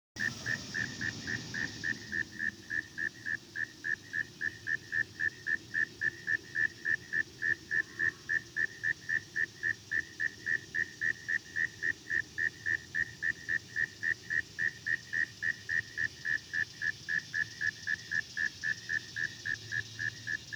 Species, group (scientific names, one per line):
Neocurtilla hexadactyla
Orthoptera